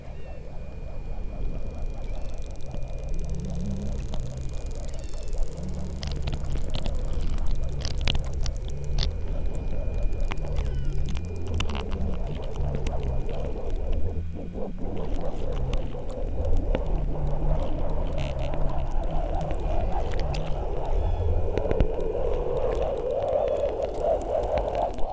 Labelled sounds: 0.0	0.5	killer whale, southern Alaska resident, 1.5 to 5.8 kHz
2.0	2.4	killer whale, southern Alaska resident, 2.1 to 2.9 kHz
4.8	5.4	killer whale, southern Alaska resident, 1.5 to 5.6 kHz

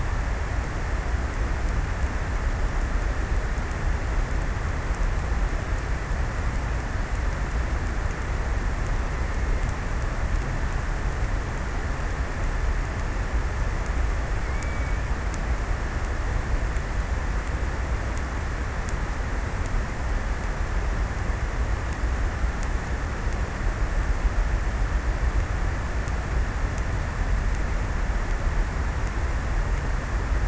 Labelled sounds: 13.8	15.3	killer whale, offshore, 1.9 to 2.6 kHz

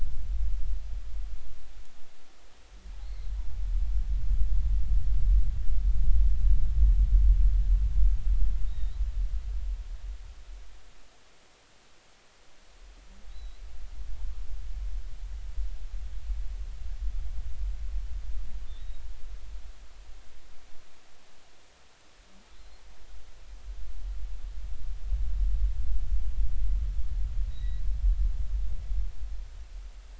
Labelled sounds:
3.0	3.3	humpback whale, 3.8 to 4.4 kHz
8.7	8.9	humpback whale, 3.6 to 3.9 kHz
13.3	13.6	humpback whale, 3.6 to 4.1 kHz
18.7	19.0	humpback whale, 3.3 to 3.9 kHz
22.5	22.8	humpback whale, 3.8 to 4.3 kHz
27.5	27.8	humpback whale, 1.8 to 4.0 kHz

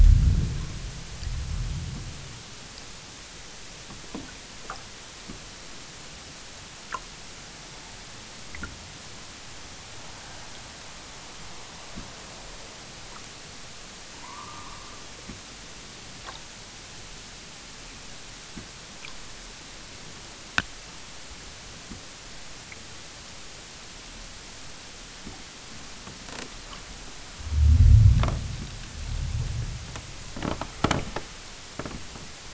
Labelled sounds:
14.2	15.2	killer whale, southern Alaska resident, 0.55 to 1.9 kHz

